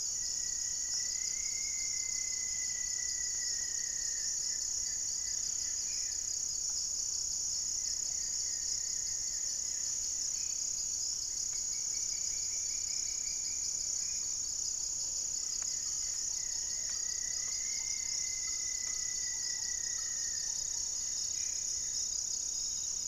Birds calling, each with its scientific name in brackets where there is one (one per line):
Little Woodpecker (Dryobates passerinus)
Goeldi's Antbird (Akletos goeldii)
Thrush-like Wren (Campylorhynchus turdinus)
Black-faced Antthrush (Formicarius analis)
Gray-fronted Dove (Leptotila rufaxilla)
Rufous-fronted Antthrush (Formicarius rufifrons)